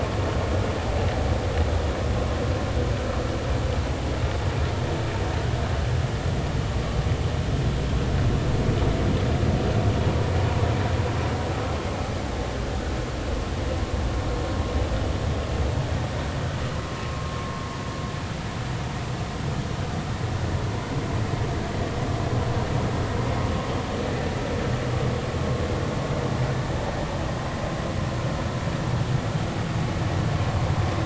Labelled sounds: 17.1	17.4	vessel noise, 1.0 to 1.2 kHz

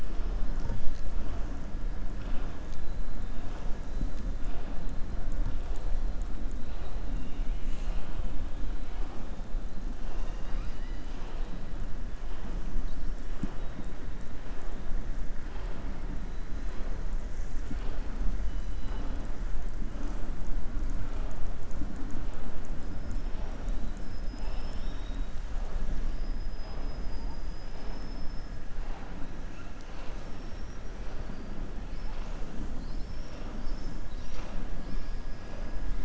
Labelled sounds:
35.2	35.7	killer whale, southern resident, 4.8 to 5.9 kHz

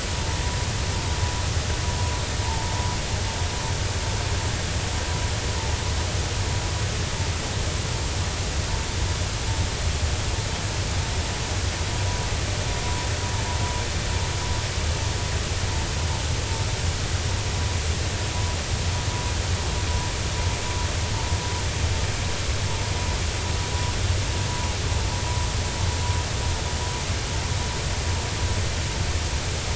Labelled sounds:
2.4	2.8	vessel noise, 0.83 to 0.99 kHz

